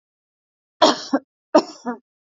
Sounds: Cough